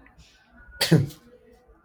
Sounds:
Sneeze